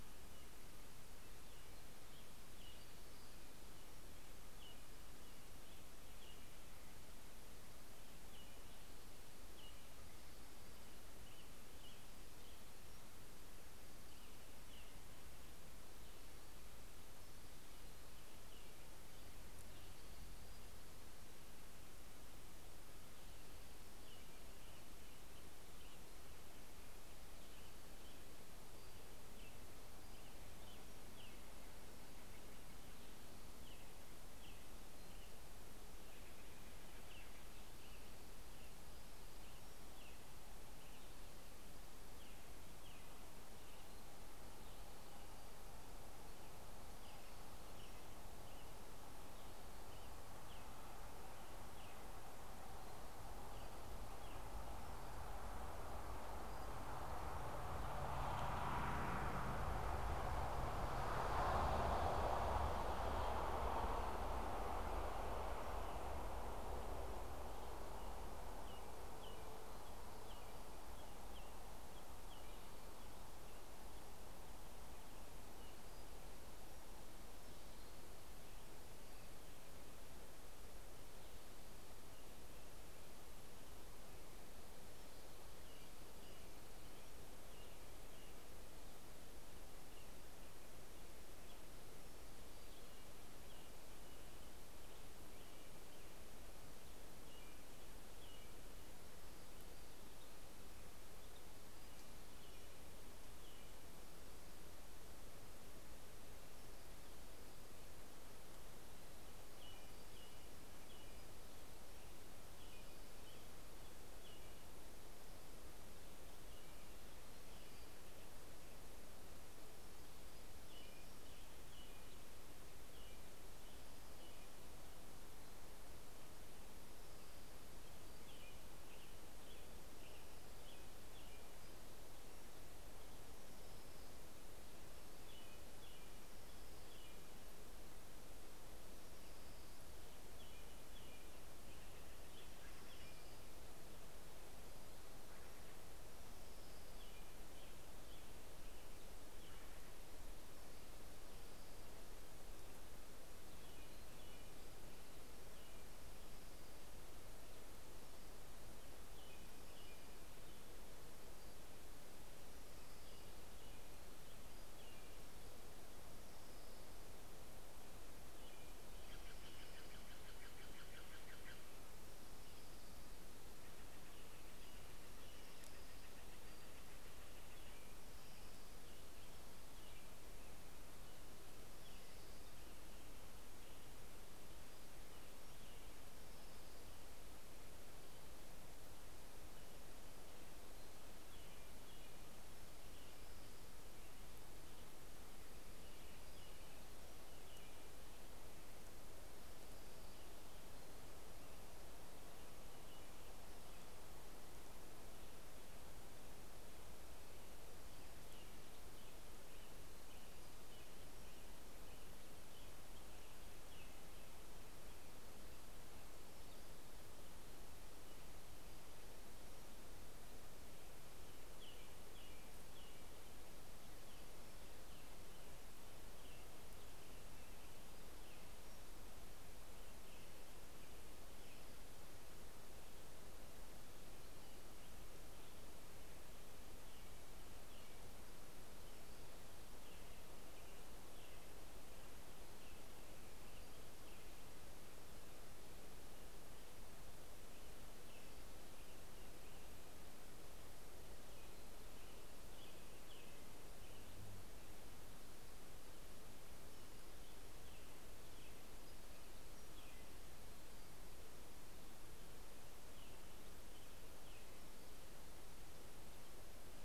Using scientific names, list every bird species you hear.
Turdus migratorius, Empidonax difficilis, Cyanocitta stelleri, Leiothlypis celata